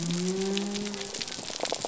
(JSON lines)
{"label": "biophony", "recorder": "SoundTrap 300"}